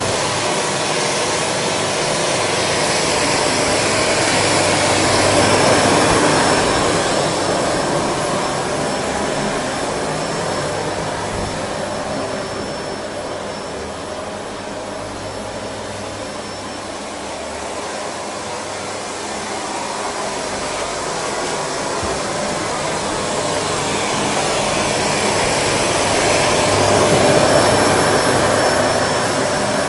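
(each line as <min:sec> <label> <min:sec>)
0:00.0 A vacuum cleaner whizzes loudly, gradually growing louder. 0:05.8
0:05.7 A vacuum cleaner whizzes loudly and gradually becomes quieter. 0:16.3
0:16.2 A vacuum cleaner whizzes loudly, gradually growing louder. 0:27.5
0:27.5 A vacuum cleaner whizzes loudly and gradually becomes quieter. 0:29.9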